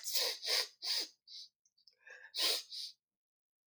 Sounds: Sniff